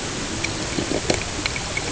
{"label": "ambient", "recorder": "HydroMoth"}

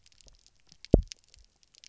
{"label": "biophony, double pulse", "recorder": "SoundTrap 300"}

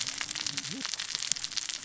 {"label": "biophony, cascading saw", "recorder": "SoundTrap 600 or HydroMoth"}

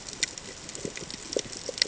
{"label": "ambient", "recorder": "HydroMoth"}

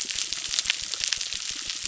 {"label": "biophony, crackle", "recorder": "SoundTrap 600"}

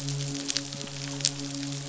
{"label": "biophony, midshipman", "recorder": "SoundTrap 500"}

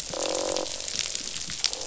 {"label": "biophony, croak", "recorder": "SoundTrap 500"}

